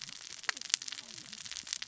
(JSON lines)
{"label": "biophony, cascading saw", "recorder": "SoundTrap 600 or HydroMoth"}